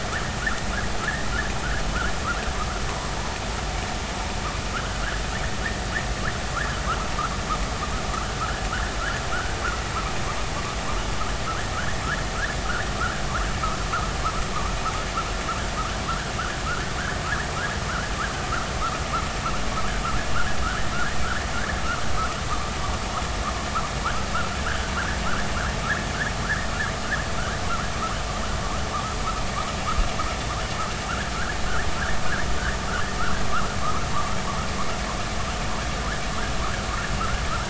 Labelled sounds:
8.4	8.6	vessel noise, 1.2 to 1.8 kHz
9.3	9.6	vessel noise, 1.2 to 1.6 kHz
16.6	16.9	vessel noise, 1.2 to 1.6 kHz
24.6	24.9	vessel noise, 1.2 to 1.8 kHz

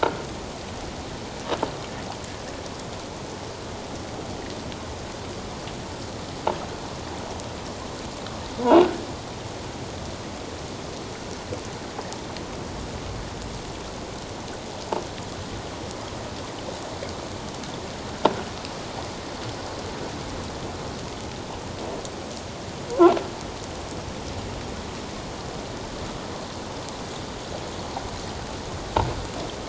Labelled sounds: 0.0	0.3	croaking sound likely from a nearby submerged object, 1.3 to 1.5 kHz

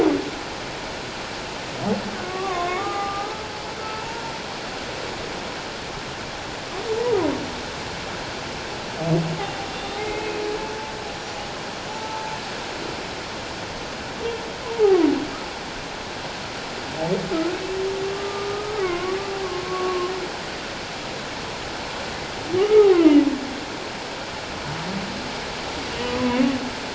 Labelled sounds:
2.2	3.5	humpback whale, 0.78 to 1.3 kHz
3.8	4.2	humpback whale, 0.88 to 1.4 kHz
9.7	10.4	humpback whale, 2.1 to 3.7 kHz
11.1	11.4	humpback whale, 5.7 to 5.9 kHz
11.9	12.3	humpback whale, 0.81 to 0.97 kHz
14.8	15.1	humpback whale, 0.94 to 1.3 kHz
18.1	19.2	humpback whale, 1.0 to 2.3 kHz
19.4	20.1	humpback whale, 1.0 to 1.2 kHz
22.6	23.2	humpback whale, 0.88 to 1.3 kHz

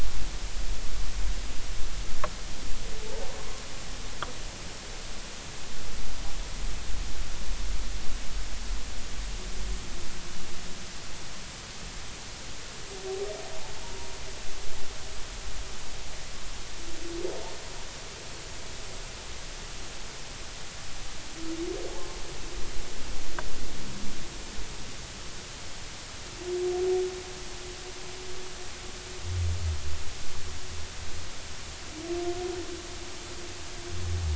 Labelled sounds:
13.8	14.1	humpback whale, 0.90 to 0.99 kHz

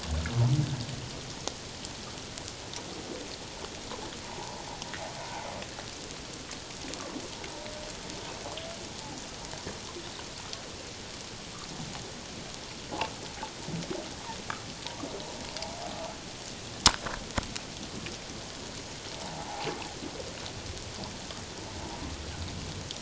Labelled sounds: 4.2	4.5	humpback whale, 0.78 to 1.0 kHz
19.2	19.7	humpback whale, 0.78 to 1.0 kHz

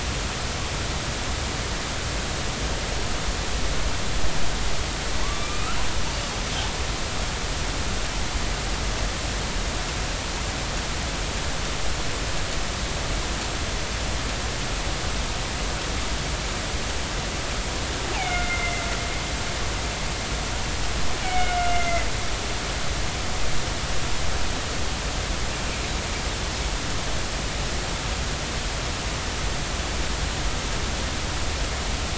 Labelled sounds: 5.2	5.8	killer whale, northern resident, A clan, AB subclan, call N16, 0.99 to 2.7 kHz
18.1	18.9	killer whale, northern resident, A clan, AB subclan, B01 pod, call N01ii, 1.3 to 2.8 kHz
21.2	22.1	killer whale, northern resident, A clan, AB subclan, B01 pod, call N01ii, 1.4 to 2.3 kHz

